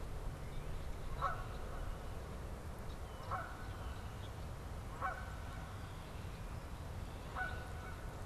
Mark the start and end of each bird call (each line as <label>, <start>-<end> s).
Canada Goose (Branta canadensis), 0.0-8.3 s
Northern Cardinal (Cardinalis cardinalis), 0.3-0.8 s
Red-winged Blackbird (Agelaius phoeniceus), 2.9-4.2 s